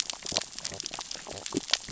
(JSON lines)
{"label": "biophony, sea urchins (Echinidae)", "recorder": "SoundTrap 600 or HydroMoth"}